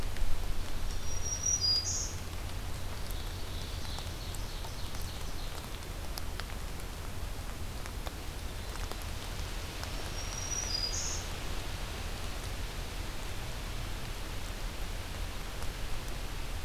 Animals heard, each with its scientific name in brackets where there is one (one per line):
Ovenbird (Seiurus aurocapilla)
Black-throated Green Warbler (Setophaga virens)